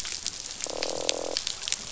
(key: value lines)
label: biophony, croak
recorder: SoundTrap 500